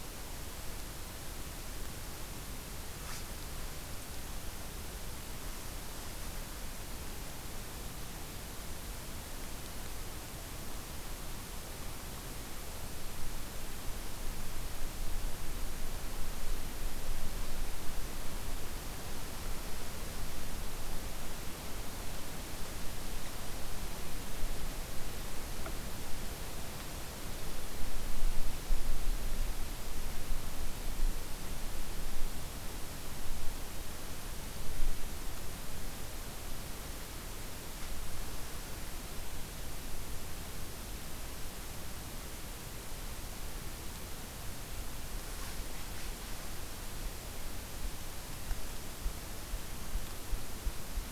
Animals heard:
forest ambience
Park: Katahdin Woods and Waters National Monument